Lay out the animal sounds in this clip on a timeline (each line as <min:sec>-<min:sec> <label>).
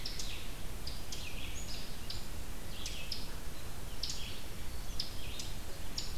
0:00.0-0:06.2 Red-eyed Vireo (Vireo olivaceus)